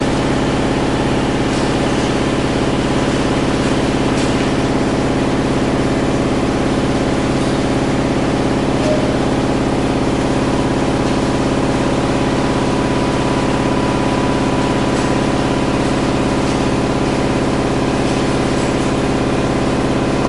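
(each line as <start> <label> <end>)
0.0 The sound of a diesel generator's motor running. 20.2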